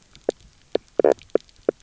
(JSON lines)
{"label": "biophony, knock croak", "recorder": "SoundTrap 300"}